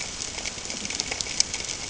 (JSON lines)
{"label": "ambient", "recorder": "HydroMoth"}